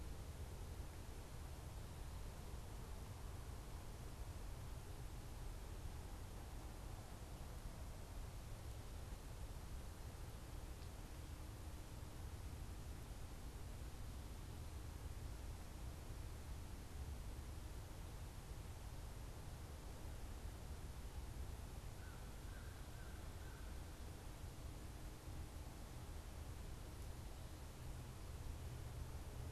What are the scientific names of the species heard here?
Corvus brachyrhynchos